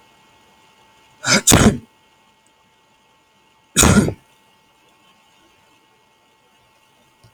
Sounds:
Sneeze